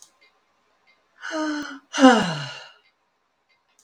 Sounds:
Sigh